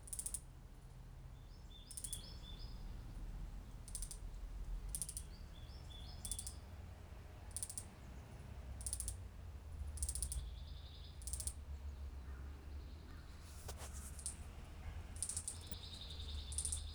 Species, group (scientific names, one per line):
Platypedia minor
Cicadidae